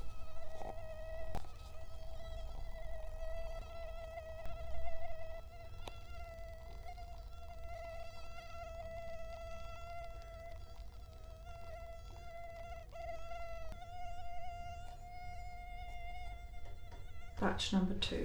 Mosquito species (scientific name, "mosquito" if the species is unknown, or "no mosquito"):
Culex quinquefasciatus